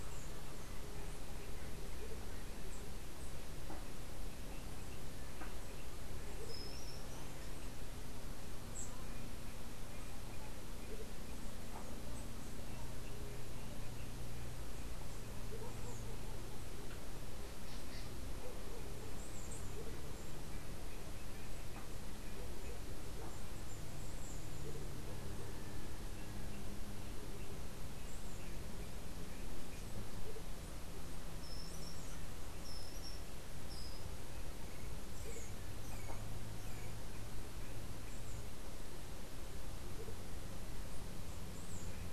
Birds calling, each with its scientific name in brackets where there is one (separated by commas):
Andean Motmot (Momotus aequatorialis), unidentified bird